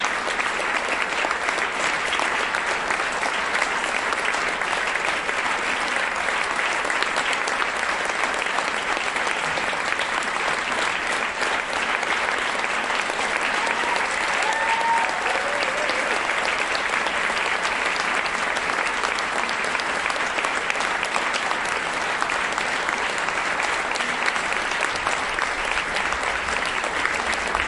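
0.0s A crowd is clapping. 27.7s
13.6s Several people cheer. 16.7s

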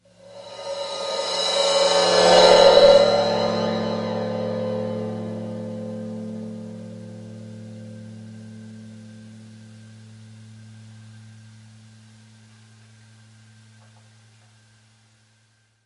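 0.2s A cymbal swell fades in. 2.6s
2.6s A cymbal swooshes and gradually fades out. 7.9s

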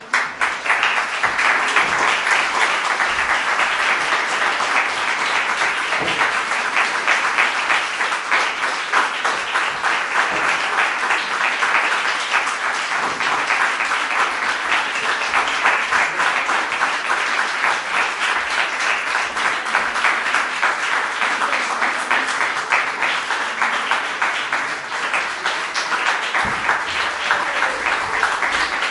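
0.0s A crowd applauds evenly. 28.9s

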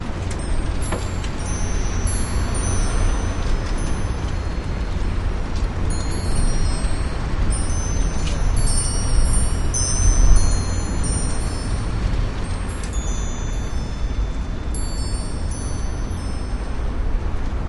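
0.1s Wind causes Christmas tree ornaments to sway and produce a continuous gentle jingling as they lightly clash. 17.7s

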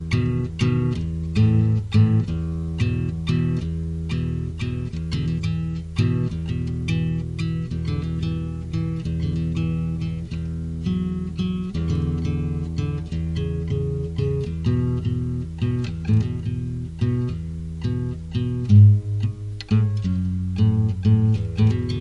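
0.0s A dark and rhythmic piece of music is played on a guitar. 22.0s

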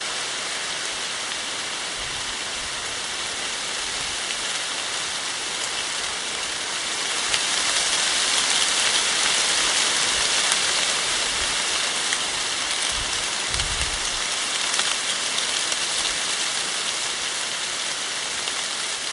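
0.0s Rain falls loudly in a forest. 19.1s

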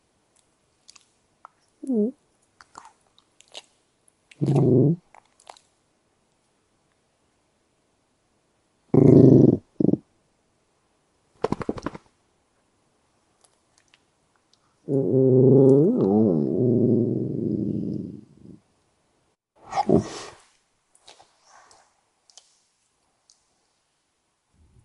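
2.5s A dog smacking its lips. 3.6s
4.3s A dog growls. 5.0s
8.9s A dog growls with short pauses in between. 10.1s
11.4s A dog is shaking. 12.1s
14.9s A dog growls. 18.6s
19.7s A dog yawns. 20.5s

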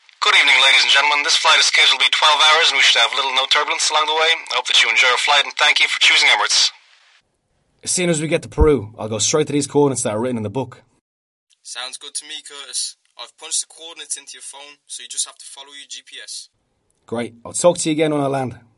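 0.0s A pilot is speaking. 7.2s
7.8s A man is speaking. 10.9s
11.3s A man is speaking on the phone. 16.6s
17.0s A man is speaking. 18.8s

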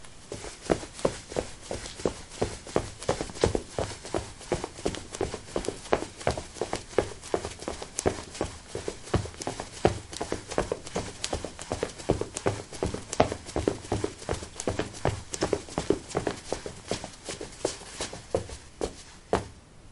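0.6s Footsteps on a hard surface. 19.7s
0.6s Fabric rubbing together. 19.9s

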